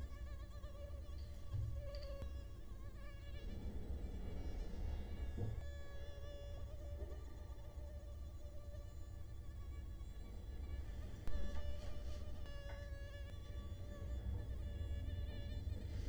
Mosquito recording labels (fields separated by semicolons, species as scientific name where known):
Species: Culex quinquefasciatus; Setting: cup